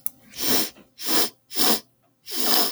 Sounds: Sniff